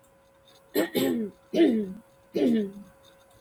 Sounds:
Throat clearing